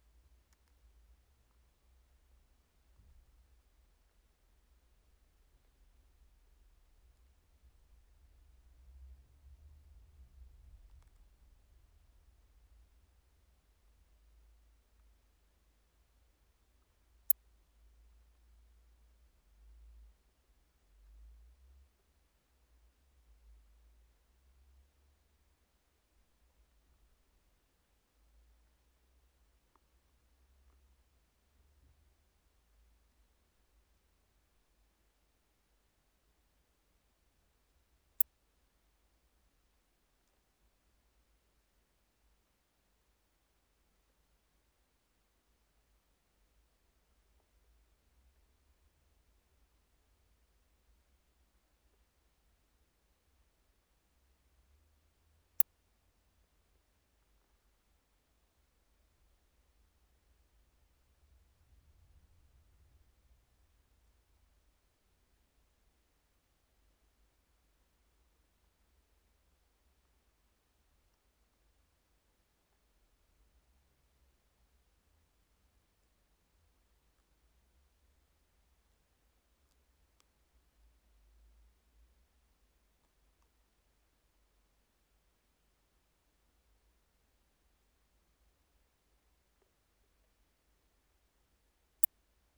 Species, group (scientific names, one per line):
Poecilimon ornatus
Orthoptera